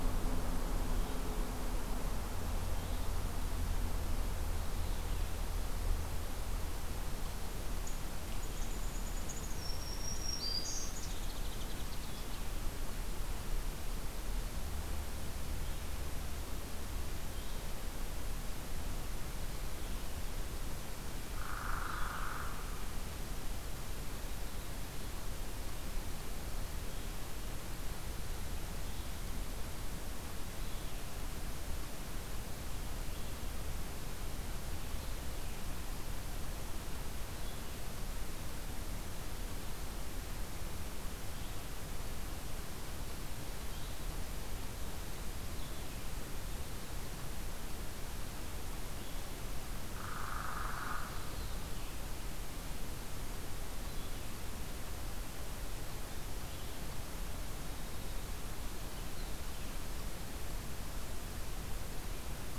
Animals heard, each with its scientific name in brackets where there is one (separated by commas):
Hairy Woodpecker (Dryobates villosus), Black-throated Green Warbler (Setophaga virens), unidentified call, Blue-headed Vireo (Vireo solitarius)